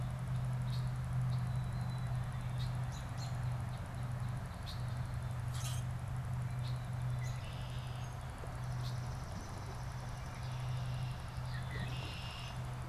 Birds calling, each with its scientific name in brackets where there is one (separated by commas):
Northern Cardinal (Cardinalis cardinalis), Common Grackle (Quiscalus quiscula), Swamp Sparrow (Melospiza georgiana), Red-winged Blackbird (Agelaius phoeniceus), American Robin (Turdus migratorius)